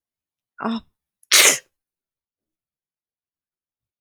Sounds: Sneeze